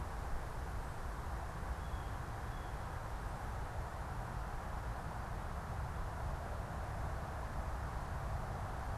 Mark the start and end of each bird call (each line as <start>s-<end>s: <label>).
1.5s-2.7s: Blue Jay (Cyanocitta cristata)